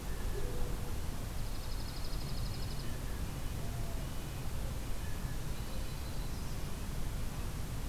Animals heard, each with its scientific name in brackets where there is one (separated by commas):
Red-breasted Nuthatch (Sitta canadensis), Blue Jay (Cyanocitta cristata), Yellow-rumped Warbler (Setophaga coronata), Dark-eyed Junco (Junco hyemalis)